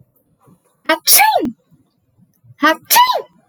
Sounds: Sneeze